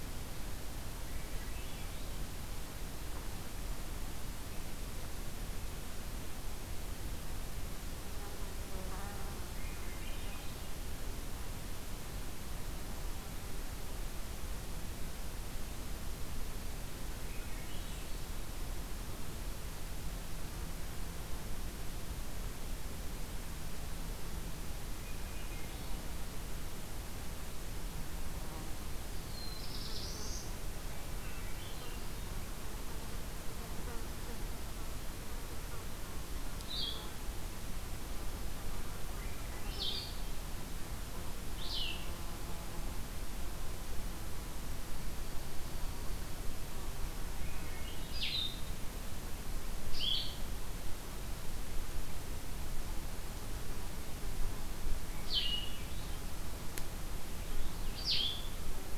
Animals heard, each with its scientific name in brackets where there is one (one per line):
Blue-headed Vireo (Vireo solitarius)
Black-throated Blue Warbler (Setophaga caerulescens)
Swainson's Thrush (Catharus ustulatus)